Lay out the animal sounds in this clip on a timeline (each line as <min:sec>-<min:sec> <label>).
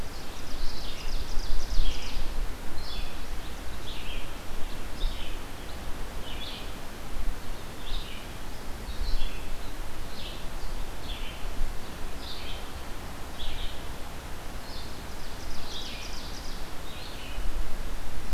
0:00.0-0:06.7 Red-eyed Vireo (Vireo olivaceus)
0:00.0-0:02.2 Ovenbird (Seiurus aurocapilla)
0:07.7-0:17.4 Red-eyed Vireo (Vireo olivaceus)
0:14.5-0:16.8 Ovenbird (Seiurus aurocapilla)